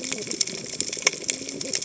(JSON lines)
{"label": "biophony, cascading saw", "recorder": "HydroMoth"}